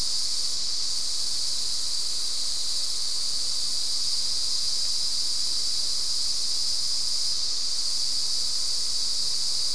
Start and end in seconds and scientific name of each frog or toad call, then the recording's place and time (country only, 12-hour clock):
none
Brazil, 6:15pm